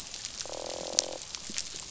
{"label": "biophony, croak", "recorder": "SoundTrap 500"}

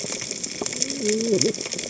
{"label": "biophony, cascading saw", "recorder": "HydroMoth"}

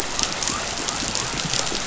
{"label": "biophony", "recorder": "SoundTrap 500"}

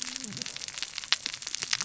{"label": "biophony, cascading saw", "recorder": "SoundTrap 600 or HydroMoth"}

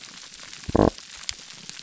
{"label": "biophony", "recorder": "SoundTrap 300"}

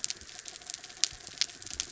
{"label": "anthrophony, mechanical", "recorder": "SoundTrap 300"}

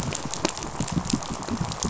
{"label": "biophony, pulse", "recorder": "SoundTrap 500"}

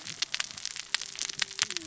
{"label": "biophony, cascading saw", "recorder": "SoundTrap 600 or HydroMoth"}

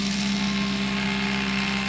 {"label": "anthrophony, boat engine", "recorder": "SoundTrap 500"}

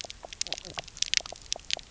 {"label": "biophony, knock croak", "recorder": "SoundTrap 300"}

